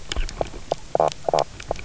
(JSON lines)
{"label": "biophony, knock croak", "recorder": "SoundTrap 300"}